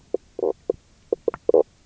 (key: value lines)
label: biophony, knock croak
recorder: SoundTrap 300